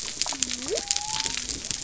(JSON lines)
{"label": "biophony", "recorder": "SoundTrap 300"}